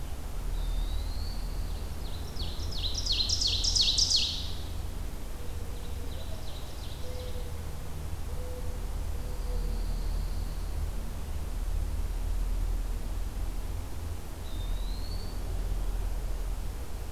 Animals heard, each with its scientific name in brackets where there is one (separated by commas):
Pine Warbler (Setophaga pinus), Mourning Dove (Zenaida macroura), Eastern Wood-Pewee (Contopus virens), Ovenbird (Seiurus aurocapilla)